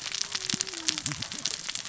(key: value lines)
label: biophony, cascading saw
recorder: SoundTrap 600 or HydroMoth